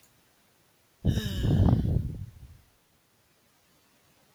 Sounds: Sigh